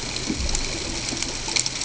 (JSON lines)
{"label": "ambient", "recorder": "HydroMoth"}